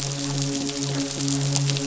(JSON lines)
{"label": "biophony, midshipman", "recorder": "SoundTrap 500"}